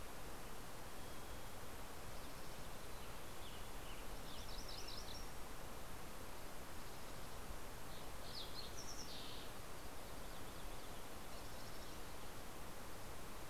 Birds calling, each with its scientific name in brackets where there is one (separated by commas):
Western Tanager (Piranga ludoviciana), Fox Sparrow (Passerella iliaca), Mountain Chickadee (Poecile gambeli), MacGillivray's Warbler (Geothlypis tolmiei)